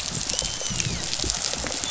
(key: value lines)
label: biophony, rattle response
recorder: SoundTrap 500

label: biophony, dolphin
recorder: SoundTrap 500